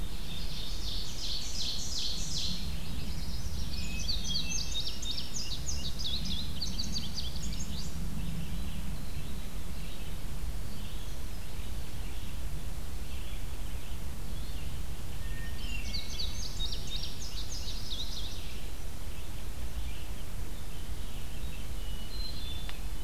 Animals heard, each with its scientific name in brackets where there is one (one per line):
Chestnut-sided Warbler (Setophaga pensylvanica)
Hermit Thrush (Catharus guttatus)
Ovenbird (Seiurus aurocapilla)
Indigo Bunting (Passerina cyanea)
Red-eyed Vireo (Vireo olivaceus)